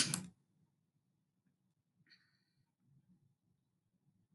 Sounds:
Sniff